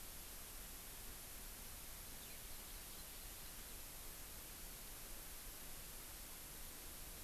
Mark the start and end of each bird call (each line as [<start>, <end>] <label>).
[2.27, 3.77] Hawaii Amakihi (Chlorodrepanis virens)